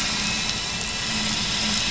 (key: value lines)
label: anthrophony, boat engine
recorder: SoundTrap 500